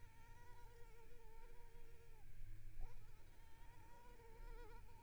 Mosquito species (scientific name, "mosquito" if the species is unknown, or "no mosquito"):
Culex pipiens complex